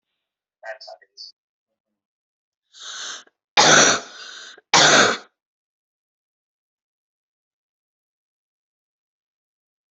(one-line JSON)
{"expert_labels": [{"quality": "ok", "cough_type": "dry", "dyspnea": false, "wheezing": false, "stridor": false, "choking": false, "congestion": false, "nothing": true, "diagnosis": "COVID-19", "severity": "mild"}, {"quality": "good", "cough_type": "dry", "dyspnea": false, "wheezing": false, "stridor": false, "choking": false, "congestion": false, "nothing": true, "diagnosis": "COVID-19", "severity": "unknown"}, {"quality": "good", "cough_type": "wet", "dyspnea": false, "wheezing": false, "stridor": false, "choking": false, "congestion": false, "nothing": true, "diagnosis": "lower respiratory tract infection", "severity": "mild"}, {"quality": "good", "cough_type": "dry", "dyspnea": false, "wheezing": false, "stridor": false, "choking": false, "congestion": false, "nothing": true, "diagnosis": "lower respiratory tract infection", "severity": "unknown"}], "age": 24, "gender": "female", "respiratory_condition": false, "fever_muscle_pain": false, "status": "symptomatic"}